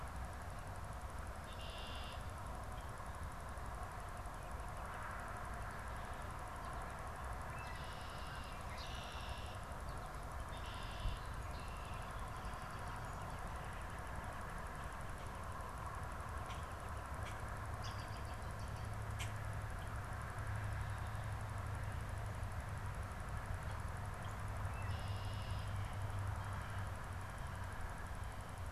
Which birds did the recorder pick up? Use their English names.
Red-winged Blackbird, American Robin, Northern Flicker, Common Grackle